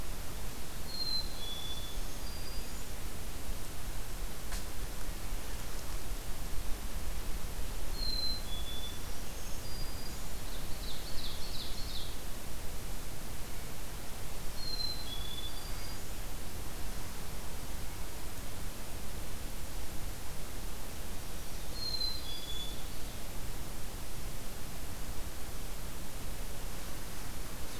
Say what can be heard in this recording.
Black-capped Chickadee, Black-throated Green Warbler, Ovenbird